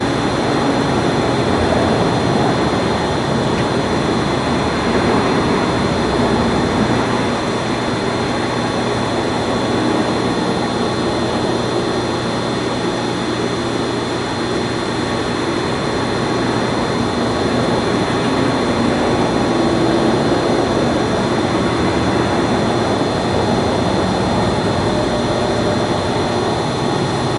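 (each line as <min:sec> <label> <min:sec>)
0:00.0 A sewing machine runs continuously indoors. 0:27.4
0:17.1 The sound of a car driving in the background. 0:27.4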